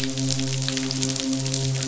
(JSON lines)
{"label": "biophony, midshipman", "recorder": "SoundTrap 500"}